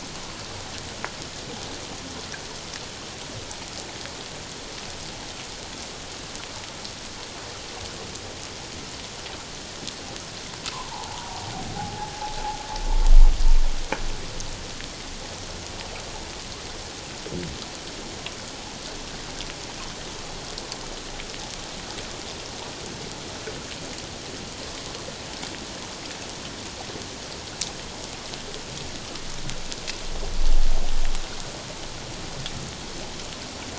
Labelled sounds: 10.7	12.1	humpback whale, 0.78 to 1.2 kHz

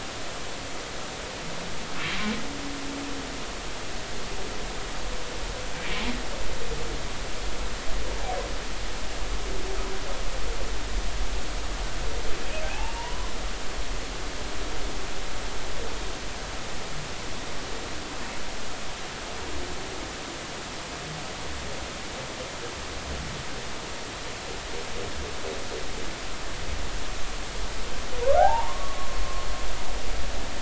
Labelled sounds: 2.1	2.4	humpback whale, 2.2 to 2.3 kHz
5.8	6.1	humpback whale, 2.2 to 2.4 kHz
12.7	13.3	humpback whale, 0.80 to 2.8 kHz
28.4	29.2	humpback whale, 0.80 to 1.2 kHz

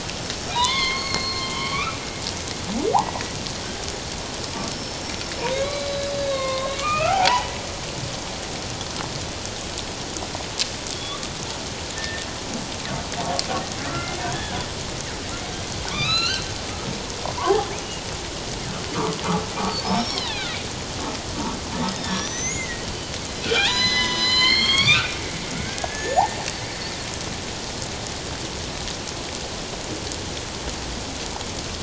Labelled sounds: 1.2	2.0	humpback whale, 0.91 to 3.2 kHz
3.0	3.4	killer whale, northern resident, 1.9 to 2.0 kHz
4.7	5.3	killer whale, 5.3 to 5.5 kHz
5.5	7.5	humpback whale, 0.78 to 4.4 kHz
10.9	12.3	killer whale, northern resident, G clan, 1.7 to 3.6 kHz
13.8	14.3	killer whale, northern resident, G clan, 1.2 to 2.3 kHz
14.2	14.6	humpback whale, 1.5 to 1.8 kHz
15.9	16.5	humpback whale, 1.1 to 6.9 kHz
17.4	17.7	humpback whale, 0.78 to 0.91 kHz
19.8	20.5	humpback whale, 1.3 to 5.7 kHz
22.0	22.9	humpback whale, 1.7 to 6.3 kHz
23.4	26.4	humpback whale, 0.78 to 7.7 kHz

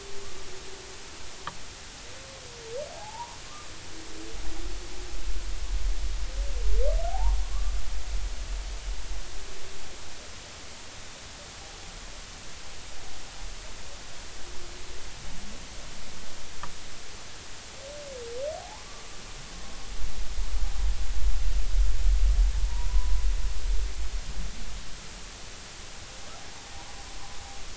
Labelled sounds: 2.9	3.4	humpback whale, 0.80 to 1.1 kHz
7.1	7.7	humpback whale, 0.80 to 1.2 kHz
18.6	18.8	humpback whale, 0.80 to 1.1 kHz
22.6	23.2	humpback whale, 0.86 to 1.1 kHz

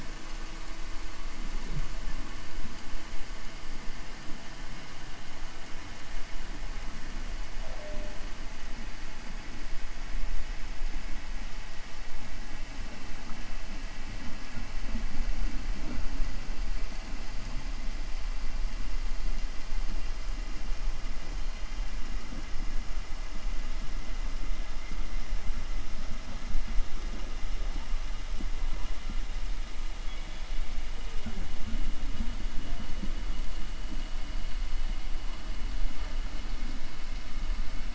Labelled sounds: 30.0	30.5	killer whale, 2.9 to 4.0 kHz

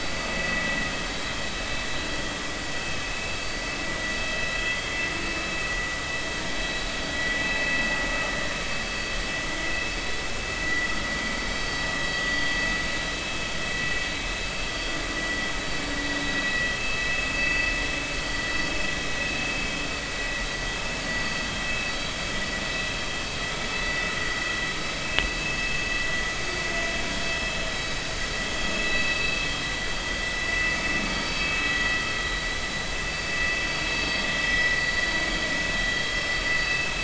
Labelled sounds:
8.3	8.5	vessel noise, 1.8 to 1.9 kHz
10.6	10.9	vessel noise, 1.9 to 2.0 kHz
15.2	15.4	vessel noise, 1.9 to 2.0 kHz
17.3	17.7	vessel noise, 2.6 to 4.8 kHz
28.7	29.4	vessel noise, 2.5 to 2.7 kHz
31.2	31.4	vessel noise, 4.5 to 4.6 kHz
33.9	34.2	vessel noise, 4.4 to 4.6 kHz
36.6	36.9	vessel noise, 2.6 to 2.7 kHz

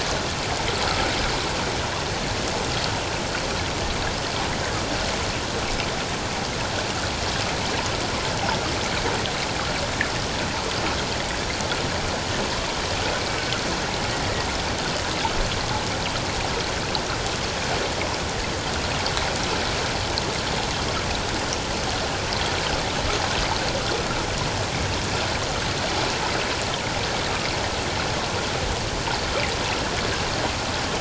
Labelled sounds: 13.3	13.5	killer whale, 2.2 to 2.3 kHz

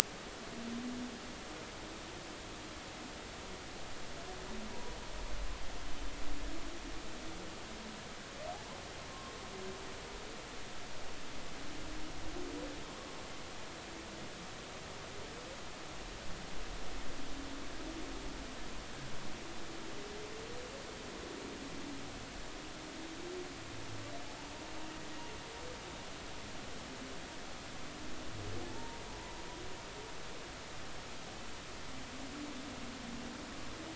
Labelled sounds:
4.7	5.0	humpback whale, 0.90 to 1.0 kHz
9.1	9.3	humpback whale, 1.0 to 1.1 kHz
28.6	29.3	humpback whale, 0.80 to 1.0 kHz

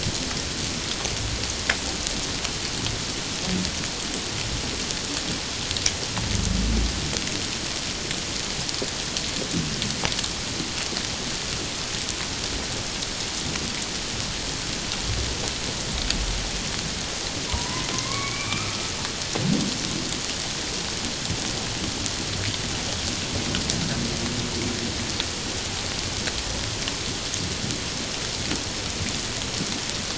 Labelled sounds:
17.5	18.9	humpback whale, 0.91 to 2.5 kHz

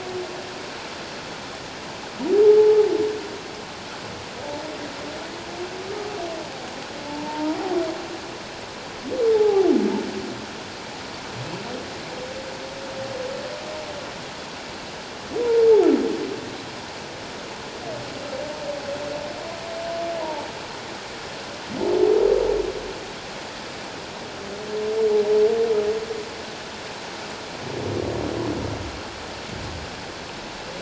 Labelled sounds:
2.5	2.8	humpback whale, 0.81 to 0.94 kHz
7.1	7.6	humpback whale, 0.84 to 1.0 kHz
9.3	9.7	humpback whale, 0.78 to 0.91 kHz

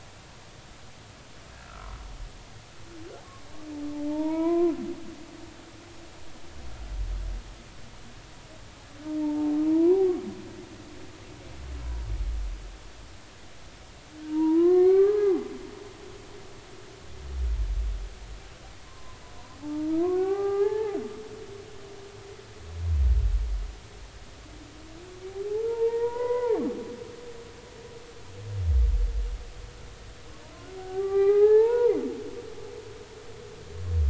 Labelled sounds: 1.6	2.0	humpback whale, 1.2 to 1.4 kHz
4.1	4.7	humpback whale, 0.86 to 2.4 kHz
9.2	10.0	humpback whale, 0.83 to 1.1 kHz
14.2	15.5	humpback whale, 0.80 to 2.4 kHz
18.8	21.0	humpback whale, 0.80 to 2.4 kHz
25.5	26.6	humpback whale, 0.80 to 2.1 kHz
30.8	32.0	humpback whale, 0.80 to 2.5 kHz

